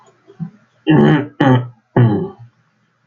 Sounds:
Throat clearing